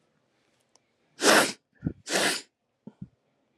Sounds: Sniff